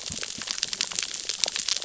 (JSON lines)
{"label": "biophony, cascading saw", "recorder": "SoundTrap 600 or HydroMoth"}